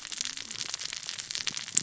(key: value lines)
label: biophony, cascading saw
recorder: SoundTrap 600 or HydroMoth